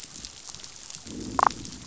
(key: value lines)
label: biophony, damselfish
recorder: SoundTrap 500